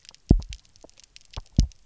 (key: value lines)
label: biophony, double pulse
recorder: SoundTrap 300